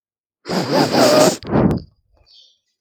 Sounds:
Sniff